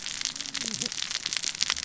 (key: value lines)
label: biophony, cascading saw
recorder: SoundTrap 600 or HydroMoth